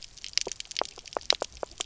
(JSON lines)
{"label": "biophony, knock croak", "recorder": "SoundTrap 300"}